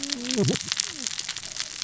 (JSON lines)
{"label": "biophony, cascading saw", "recorder": "SoundTrap 600 or HydroMoth"}